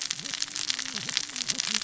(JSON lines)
{"label": "biophony, cascading saw", "recorder": "SoundTrap 600 or HydroMoth"}